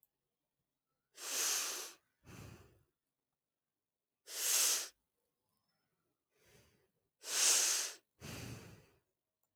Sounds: Sigh